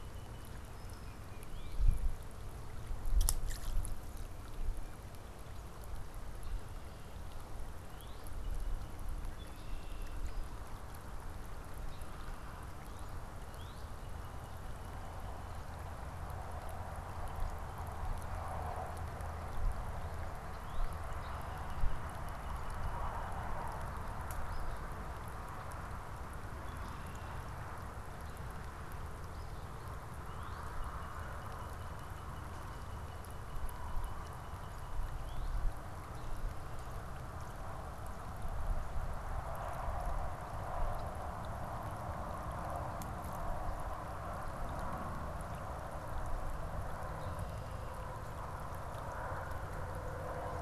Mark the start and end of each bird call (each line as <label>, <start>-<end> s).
Northern Cardinal (Cardinalis cardinalis), 0.0-1.9 s
Tufted Titmouse (Baeolophus bicolor), 0.8-2.1 s
Northern Cardinal (Cardinalis cardinalis), 7.8-9.2 s
Red-winged Blackbird (Agelaius phoeniceus), 9.3-10.3 s
Northern Cardinal (Cardinalis cardinalis), 12.8-15.3 s
Northern Cardinal (Cardinalis cardinalis), 20.3-23.6 s
Eastern Phoebe (Sayornis phoebe), 24.4-24.9 s
Red-winged Blackbird (Agelaius phoeniceus), 26.5-27.6 s
Eastern Phoebe (Sayornis phoebe), 29.3-29.7 s
Northern Cardinal (Cardinalis cardinalis), 30.2-35.6 s